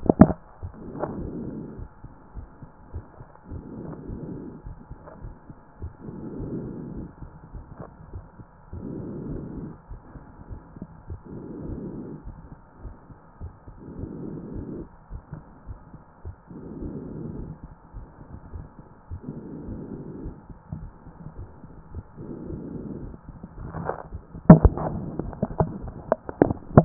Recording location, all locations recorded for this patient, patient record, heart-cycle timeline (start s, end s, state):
pulmonary valve (PV)
pulmonary valve (PV)+tricuspid valve (TV)
#Age: Child
#Sex: Male
#Height: 163.0 cm
#Weight: 80.6 kg
#Pregnancy status: False
#Murmur: Absent
#Murmur locations: nan
#Most audible location: nan
#Systolic murmur timing: nan
#Systolic murmur shape: nan
#Systolic murmur grading: nan
#Systolic murmur pitch: nan
#Systolic murmur quality: nan
#Diastolic murmur timing: nan
#Diastolic murmur shape: nan
#Diastolic murmur grading: nan
#Diastolic murmur pitch: nan
#Diastolic murmur quality: nan
#Outcome: Normal
#Campaign: 2014 screening campaign
0.00	1.62	unannotated
1.62	1.78	diastole
1.78	1.88	S1
1.88	2.04	systole
2.04	2.12	S2
2.12	2.34	diastole
2.34	2.46	S1
2.46	2.62	systole
2.62	2.70	S2
2.70	2.92	diastole
2.92	3.04	S1
3.04	3.18	systole
3.18	3.28	S2
3.28	3.50	diastole
3.50	3.62	S1
3.62	3.76	systole
3.76	3.90	S2
3.90	4.08	diastole
4.08	4.20	S1
4.20	4.32	systole
4.32	4.44	S2
4.44	4.66	diastole
4.66	4.76	S1
4.76	4.90	systole
4.90	5.00	S2
5.00	5.22	diastole
5.22	5.32	S1
5.32	5.48	systole
5.48	5.58	S2
5.58	5.82	diastole
5.82	26.85	unannotated